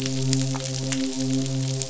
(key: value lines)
label: biophony, midshipman
recorder: SoundTrap 500